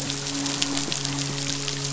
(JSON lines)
{"label": "biophony, midshipman", "recorder": "SoundTrap 500"}